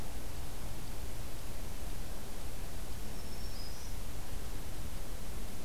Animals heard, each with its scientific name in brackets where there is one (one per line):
Black-throated Green Warbler (Setophaga virens)